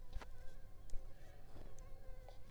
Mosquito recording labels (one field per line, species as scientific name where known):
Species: Anopheles funestus s.s.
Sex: female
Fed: unfed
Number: one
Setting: cup